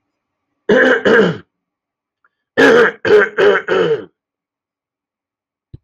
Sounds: Throat clearing